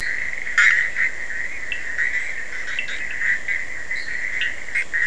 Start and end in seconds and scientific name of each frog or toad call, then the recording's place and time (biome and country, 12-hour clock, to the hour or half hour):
0.0	0.4	Boana leptolineata
0.0	5.0	Boana bischoffi
1.7	2.9	Sphaenorhynchus surdus
3.8	4.3	Boana leptolineata
4.3	4.7	Sphaenorhynchus surdus
Atlantic Forest, Brazil, 3:30am